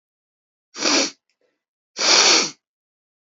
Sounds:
Sniff